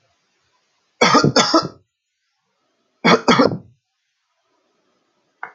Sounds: Cough